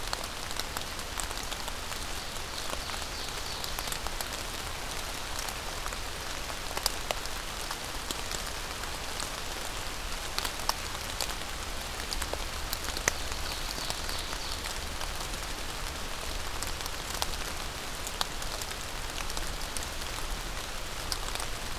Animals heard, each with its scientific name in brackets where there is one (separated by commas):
Ovenbird (Seiurus aurocapilla)